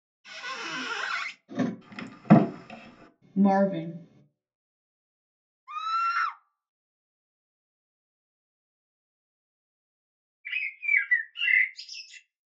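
First, squeaking is audible. Then there is the sound of a car. Afterwards, a wooden cupboard opens. Following that, someone says "Marvin." Later, someone screams. Finally, a bird can be heard.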